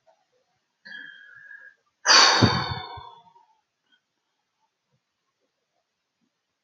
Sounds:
Sigh